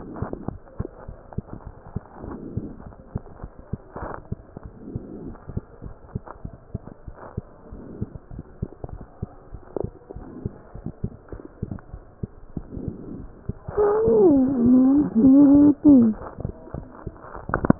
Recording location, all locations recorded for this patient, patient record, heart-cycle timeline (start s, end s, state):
mitral valve (MV)
aortic valve (AV)+pulmonary valve (PV)+tricuspid valve (TV)+mitral valve (MV)
#Age: Child
#Sex: Male
#Height: 113.0 cm
#Weight: 19.4 kg
#Pregnancy status: False
#Murmur: Absent
#Murmur locations: nan
#Most audible location: nan
#Systolic murmur timing: nan
#Systolic murmur shape: nan
#Systolic murmur grading: nan
#Systolic murmur pitch: nan
#Systolic murmur quality: nan
#Diastolic murmur timing: nan
#Diastolic murmur shape: nan
#Diastolic murmur grading: nan
#Diastolic murmur pitch: nan
#Diastolic murmur quality: nan
#Outcome: Normal
#Campaign: 2015 screening campaign
0.00	0.91	unannotated
0.91	1.06	diastole
1.06	1.14	S1
1.14	1.34	systole
1.34	1.44	S2
1.44	1.66	diastole
1.66	1.73	S1
1.73	1.95	systole
1.95	2.02	S2
2.02	2.24	diastole
2.24	2.32	S1
2.32	2.55	systole
2.55	2.63	S2
2.63	2.84	diastole
2.84	2.91	S1
2.91	3.13	systole
3.13	3.21	S2
3.21	3.41	diastole
3.41	3.51	S1
3.51	3.71	systole
3.71	3.79	S2
3.79	4.00	diastole
4.00	4.09	S1
4.09	4.28	systole
4.28	4.40	S2
4.40	4.63	diastole
4.63	4.71	S1
4.71	4.93	systole
4.93	5.01	S2
5.01	5.25	diastole
5.25	5.41	S1
5.41	5.54	systole
5.54	5.65	S2
5.65	5.82	diastole
5.82	5.96	S1
5.96	6.12	systole
6.12	6.22	S2
6.22	6.42	diastole
6.42	6.52	S1
6.52	6.72	systole
6.72	6.81	S2
6.81	7.05	diastole
7.05	7.14	S1
7.14	7.34	systole
7.34	7.42	S2
7.42	7.69	diastole
7.69	7.81	S1
7.81	8.00	systole
8.00	8.08	S2
8.08	8.33	diastole
8.33	8.47	S1
8.47	8.60	systole
8.60	8.70	S2
8.70	8.91	diastole
8.91	9.02	S1
9.02	9.20	systole
9.20	9.30	S2
9.30	9.51	diastole
9.51	17.79	unannotated